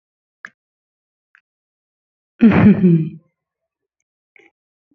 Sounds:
Laughter